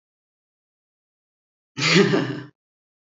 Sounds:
Laughter